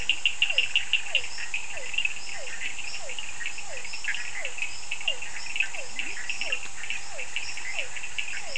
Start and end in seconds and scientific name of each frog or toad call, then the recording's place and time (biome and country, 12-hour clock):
0.0	8.5	Physalaemus cuvieri
5.7	6.6	Leptodactylus latrans
Atlantic Forest, Brazil, 11:30pm